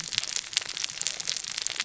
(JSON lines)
{"label": "biophony, cascading saw", "recorder": "SoundTrap 600 or HydroMoth"}